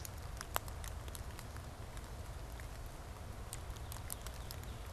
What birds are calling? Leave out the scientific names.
Northern Cardinal